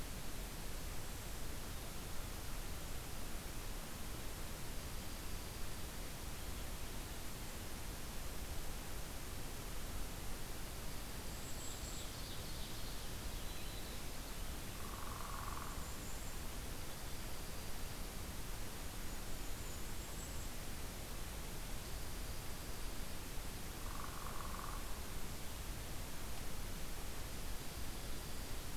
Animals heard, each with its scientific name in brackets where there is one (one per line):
Black-throated Green Warbler (Setophaga virens)
Purple Finch (Haemorhous purpureus)
Ovenbird (Seiurus aurocapilla)
Dark-eyed Junco (Junco hyemalis)
Northern Flicker (Colaptes auratus)
Golden-crowned Kinglet (Regulus satrapa)